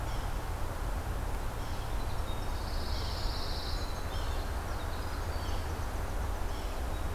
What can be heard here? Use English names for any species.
Yellow-bellied Sapsucker, Winter Wren, Pine Warbler